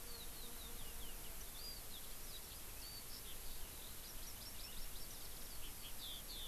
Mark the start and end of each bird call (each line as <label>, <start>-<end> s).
Eurasian Skylark (Alauda arvensis), 0.0-6.5 s